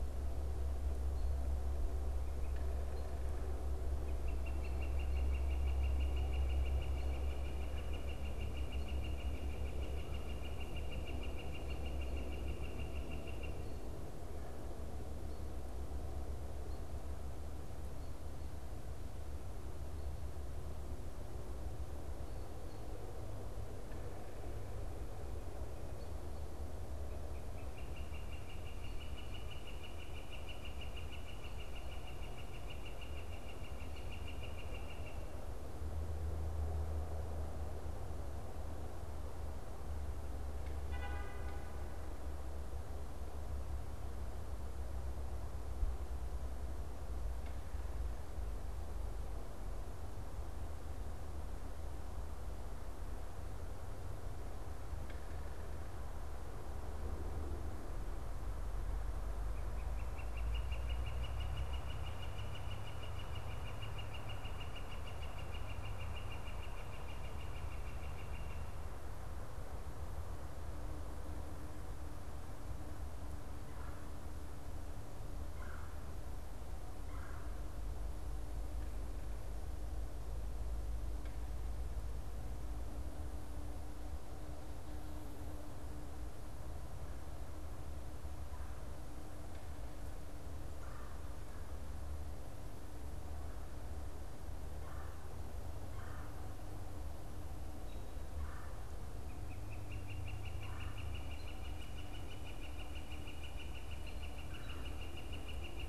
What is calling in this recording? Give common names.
Northern Flicker, Red-bellied Woodpecker